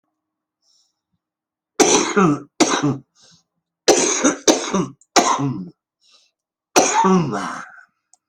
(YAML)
expert_labels:
- quality: good
  cough_type: wet
  dyspnea: false
  wheezing: false
  stridor: false
  choking: false
  congestion: false
  nothing: true
  diagnosis: lower respiratory tract infection
  severity: mild
age: 71
gender: male
respiratory_condition: true
fever_muscle_pain: false
status: healthy